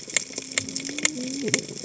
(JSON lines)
{"label": "biophony, cascading saw", "recorder": "HydroMoth"}